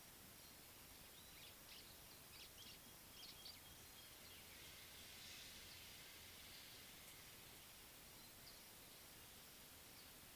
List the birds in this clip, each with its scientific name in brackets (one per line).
White-browed Sparrow-Weaver (Plocepasser mahali)